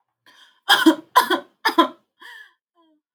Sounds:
Sigh